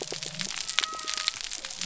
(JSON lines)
{"label": "biophony", "recorder": "SoundTrap 300"}